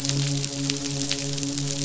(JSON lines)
{"label": "biophony, midshipman", "recorder": "SoundTrap 500"}